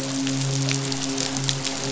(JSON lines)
{"label": "biophony, midshipman", "recorder": "SoundTrap 500"}